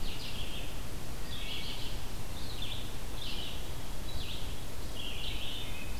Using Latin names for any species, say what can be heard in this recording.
Vireo olivaceus, Hylocichla mustelina